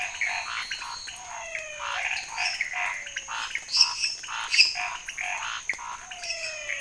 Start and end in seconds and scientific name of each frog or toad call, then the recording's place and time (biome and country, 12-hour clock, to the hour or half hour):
0.0	1.4	Elachistocleis matogrosso
0.0	6.8	Boana raniceps
0.0	6.8	Dendropsophus minutus
0.0	6.8	Leptodactylus podicipinus
0.0	6.8	Scinax fuscovarius
0.7	2.7	Physalaemus albonotatus
6.0	6.8	Physalaemus albonotatus
Cerrado, Brazil, ~11pm